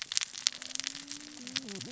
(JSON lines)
{"label": "biophony, cascading saw", "recorder": "SoundTrap 600 or HydroMoth"}